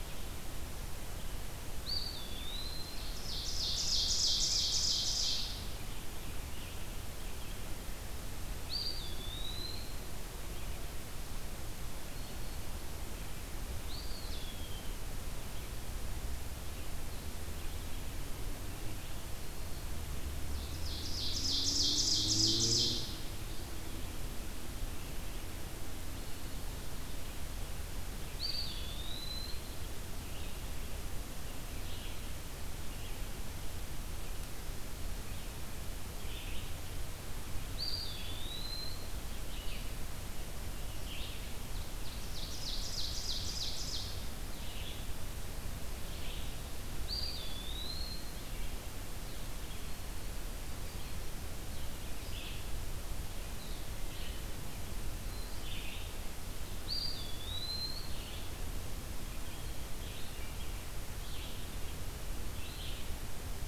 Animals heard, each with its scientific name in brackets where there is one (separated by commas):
Ovenbird (Seiurus aurocapilla), Red-eyed Vireo (Vireo olivaceus), Eastern Wood-Pewee (Contopus virens), Scarlet Tanager (Piranga olivacea)